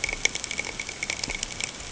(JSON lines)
{"label": "ambient", "recorder": "HydroMoth"}